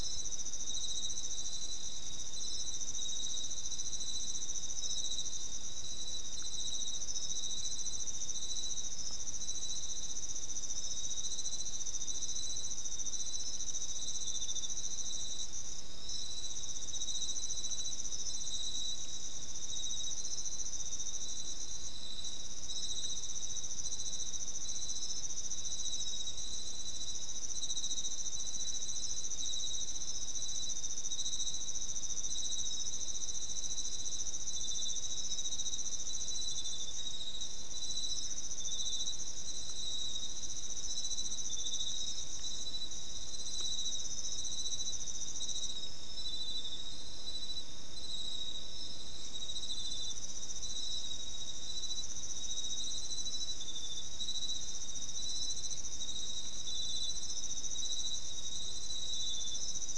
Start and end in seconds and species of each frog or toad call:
none
12:30am

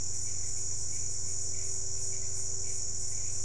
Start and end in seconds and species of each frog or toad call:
none
5:45pm

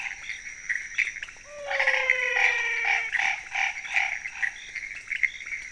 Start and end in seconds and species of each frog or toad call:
0.0	5.7	Leptodactylus podicipinus
0.0	5.7	Pithecopus azureus
1.4	3.2	Physalaemus albonotatus
1.6	4.5	Boana raniceps
3:45am

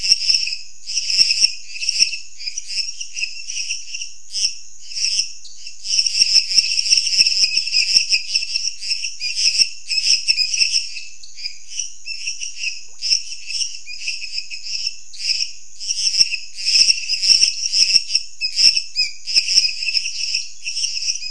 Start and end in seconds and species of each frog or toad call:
0.0	21.3	Dendropsophus minutus
5.4	5.6	Dendropsophus nanus
11.0	11.3	Dendropsophus nanus
10:00pm

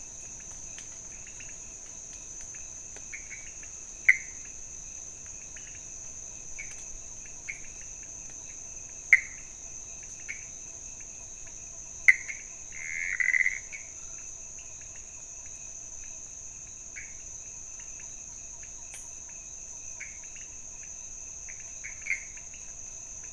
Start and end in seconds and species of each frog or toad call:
0.0	23.3	Leptodactylus podicipinus
4.1	4.4	Pithecopus azureus
9.1	9.6	Pithecopus azureus
12.0	13.9	Pithecopus azureus
16.9	17.2	Pithecopus azureus
19.9	20.3	Pithecopus azureus
21.4	22.4	Pithecopus azureus
1:00am

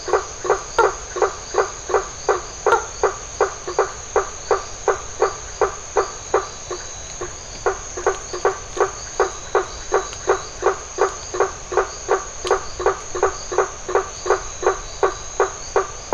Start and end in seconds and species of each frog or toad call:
0.2	16.1	Boana faber
0.6	16.1	Adenomera marmorata
7:30pm

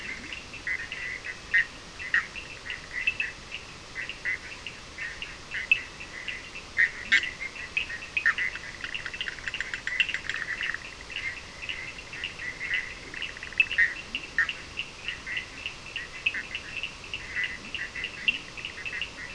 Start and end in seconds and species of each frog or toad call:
0.0	0.9	Leptodactylus latrans
0.0	19.0	Boana bischoffi
0.0	19.3	Sphaenorhynchus surdus
7.0	7.4	Leptodactylus latrans
13.8	14.5	Leptodactylus latrans
17.4	18.6	Leptodactylus latrans
3:00am

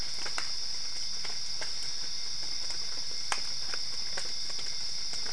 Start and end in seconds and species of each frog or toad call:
none
3:45am

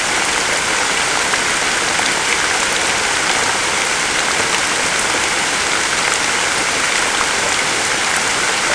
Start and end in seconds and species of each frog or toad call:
none
3:30am

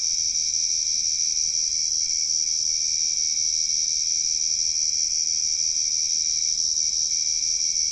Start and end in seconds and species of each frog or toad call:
none
9:30pm

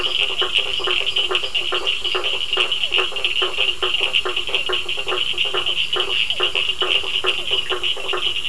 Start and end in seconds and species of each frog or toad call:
0.0	2.5	Dendropsophus minutus
0.0	7.6	Elachistocleis bicolor
0.0	8.4	Boana faber
0.0	8.4	Sphaenorhynchus surdus
1.5	7.5	Physalaemus cuvieri
8:15pm

